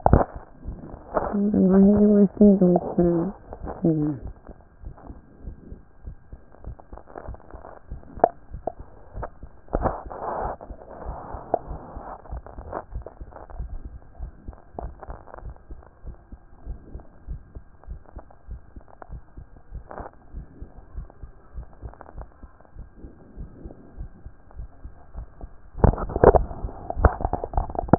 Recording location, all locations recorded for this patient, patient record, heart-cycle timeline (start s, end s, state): pulmonary valve (PV)
aortic valve (AV)+pulmonary valve (PV)+tricuspid valve (TV)+mitral valve (MV)
#Age: nan
#Sex: Female
#Height: nan
#Weight: nan
#Pregnancy status: True
#Murmur: Absent
#Murmur locations: nan
#Most audible location: nan
#Systolic murmur timing: nan
#Systolic murmur shape: nan
#Systolic murmur grading: nan
#Systolic murmur pitch: nan
#Systolic murmur quality: nan
#Diastolic murmur timing: nan
#Diastolic murmur shape: nan
#Diastolic murmur grading: nan
#Diastolic murmur pitch: nan
#Diastolic murmur quality: nan
#Outcome: Normal
#Campaign: 2014 screening campaign
0.00	15.44	unannotated
15.44	15.56	S1
15.56	15.72	systole
15.72	15.82	S2
15.82	16.06	diastole
16.06	16.16	S1
16.16	16.30	systole
16.30	16.40	S2
16.40	16.66	diastole
16.66	16.78	S1
16.78	16.94	systole
16.94	17.02	S2
17.02	17.28	diastole
17.28	17.40	S1
17.40	17.56	systole
17.56	17.64	S2
17.64	17.88	diastole
17.88	18.00	S1
18.00	18.16	systole
18.16	18.24	S2
18.24	18.50	diastole
18.50	18.60	S1
18.60	18.76	systole
18.76	18.86	S2
18.86	19.10	diastole
19.10	19.22	S1
19.22	19.38	systole
19.38	19.48	S2
19.48	19.72	diastole
19.72	19.84	S1
19.84	19.98	systole
19.98	20.08	S2
20.08	20.34	diastole
20.34	20.46	S1
20.46	20.60	systole
20.60	20.70	S2
20.70	20.96	diastole
20.96	21.08	S1
21.08	21.22	systole
21.22	21.30	S2
21.30	21.56	diastole
21.56	21.66	S1
21.66	21.84	systole
21.84	21.94	S2
21.94	22.16	diastole
22.16	22.28	S1
22.28	22.44	systole
22.44	22.54	S2
22.54	22.76	diastole
22.76	22.88	S1
22.88	23.02	systole
23.02	23.12	S2
23.12	23.38	diastole
23.38	23.50	S1
23.50	23.64	systole
23.64	23.74	S2
23.74	23.98	diastole
23.98	24.10	S1
24.10	24.24	systole
24.24	24.34	S2
24.34	24.58	diastole
24.58	24.68	S1
24.68	24.84	systole
24.84	24.94	S2
24.94	25.16	diastole
25.16	25.28	S1
25.28	25.42	systole
25.42	25.50	S2
25.50	25.75	diastole
25.75	27.98	unannotated